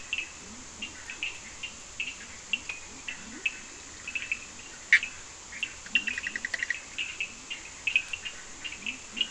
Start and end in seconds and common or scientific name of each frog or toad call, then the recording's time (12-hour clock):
0.0	9.3	Leptodactylus latrans
0.0	9.3	Cochran's lime tree frog
4.7	7.1	Bischoff's tree frog
4:30am